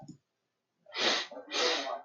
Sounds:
Sniff